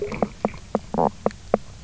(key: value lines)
label: biophony, knock croak
recorder: SoundTrap 300